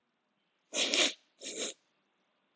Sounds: Sniff